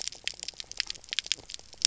{"label": "biophony, knock croak", "recorder": "SoundTrap 300"}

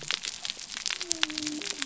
{"label": "biophony", "recorder": "SoundTrap 300"}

